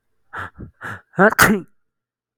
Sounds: Sneeze